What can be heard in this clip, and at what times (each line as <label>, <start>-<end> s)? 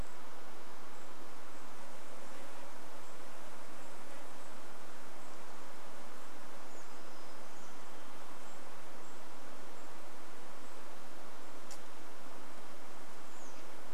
insect buzz, 0-6 s
Golden-crowned Kinglet call, 0-12 s
American Robin call, 6-8 s
warbler song, 6-8 s
American Robin call, 12-14 s